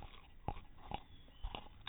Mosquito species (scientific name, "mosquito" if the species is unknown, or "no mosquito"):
no mosquito